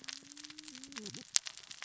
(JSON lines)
{"label": "biophony, cascading saw", "recorder": "SoundTrap 600 or HydroMoth"}